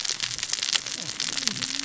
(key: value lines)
label: biophony, cascading saw
recorder: SoundTrap 600 or HydroMoth